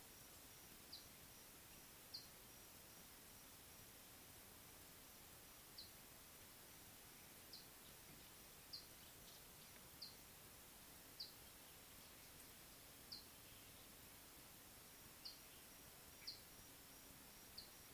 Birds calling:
Scarlet-chested Sunbird (Chalcomitra senegalensis)

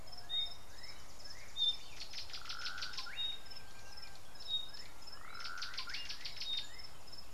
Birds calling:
Gray-backed Camaroptera (Camaroptera brevicaudata), Slate-colored Boubou (Laniarius funebris)

